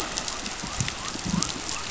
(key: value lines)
label: biophony
recorder: SoundTrap 500